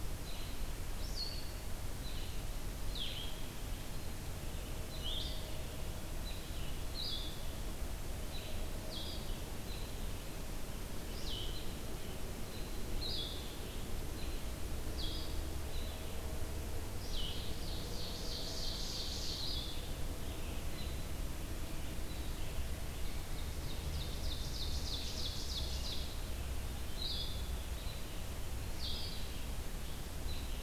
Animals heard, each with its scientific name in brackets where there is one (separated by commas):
Blue-headed Vireo (Vireo solitarius), Ovenbird (Seiurus aurocapilla)